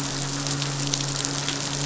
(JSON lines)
{"label": "biophony, midshipman", "recorder": "SoundTrap 500"}